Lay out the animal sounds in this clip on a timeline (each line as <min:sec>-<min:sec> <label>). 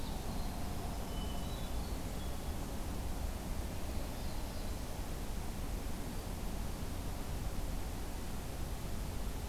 0:00.0-0:01.6 Winter Wren (Troglodytes hiemalis)
0:01.0-0:02.5 Hermit Thrush (Catharus guttatus)
0:03.9-0:05.0 Black-throated Blue Warbler (Setophaga caerulescens)